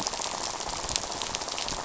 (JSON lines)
{"label": "biophony, rattle", "recorder": "SoundTrap 500"}